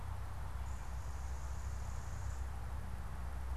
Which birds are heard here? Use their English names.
Common Yellowthroat